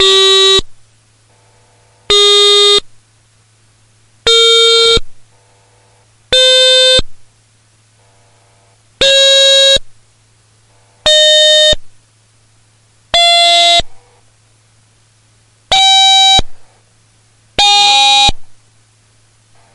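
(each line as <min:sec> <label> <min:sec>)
0:00.0 A stylophone plays a tone. 0:00.7
0:01.6 Stylophone tones rising in pitch. 0:18.7
0:02.0 A stylophone plays a tone. 0:02.9
0:04.2 A stylophone plays a tone. 0:05.1
0:06.3 A stylophone plays a tone. 0:07.1
0:09.0 A stylophone plays a tone. 0:09.8
0:11.0 A stylophone plays a tone. 0:11.9
0:13.0 A stylophone plays a tone. 0:13.9
0:15.6 A stylophone plays a tone. 0:16.5
0:17.5 A stylophone plays a tone. 0:18.4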